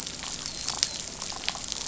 {"label": "biophony, dolphin", "recorder": "SoundTrap 500"}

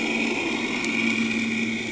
{"label": "anthrophony, boat engine", "recorder": "HydroMoth"}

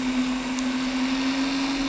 {"label": "anthrophony, boat engine", "recorder": "SoundTrap 300"}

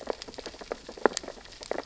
{"label": "biophony, sea urchins (Echinidae)", "recorder": "SoundTrap 600 or HydroMoth"}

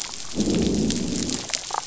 {"label": "biophony, growl", "recorder": "SoundTrap 500"}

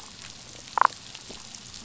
{"label": "biophony, damselfish", "recorder": "SoundTrap 500"}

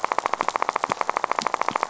{"label": "biophony, rattle", "recorder": "SoundTrap 500"}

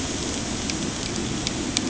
{"label": "anthrophony, boat engine", "recorder": "HydroMoth"}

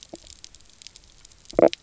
{"label": "biophony, stridulation", "recorder": "SoundTrap 300"}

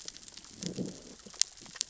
{"label": "biophony, growl", "recorder": "SoundTrap 600 or HydroMoth"}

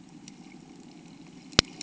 {"label": "anthrophony, boat engine", "recorder": "HydroMoth"}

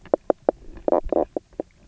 {"label": "biophony, knock croak", "recorder": "SoundTrap 300"}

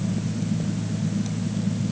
{"label": "anthrophony, boat engine", "recorder": "HydroMoth"}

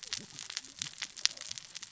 {"label": "biophony, cascading saw", "recorder": "SoundTrap 600 or HydroMoth"}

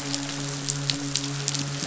{"label": "biophony, midshipman", "recorder": "SoundTrap 500"}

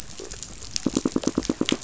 {"label": "biophony, knock", "recorder": "SoundTrap 500"}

